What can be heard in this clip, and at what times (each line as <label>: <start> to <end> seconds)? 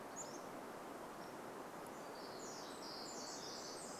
Pacific-slope Flycatcher song: 0 to 2 seconds
Pacific Wren song: 2 to 4 seconds